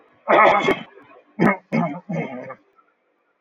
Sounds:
Throat clearing